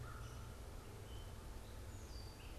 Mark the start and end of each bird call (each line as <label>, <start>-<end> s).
American Crow (Corvus brachyrhynchos), 0.0-0.8 s
Gray Catbird (Dumetella carolinensis), 0.0-2.6 s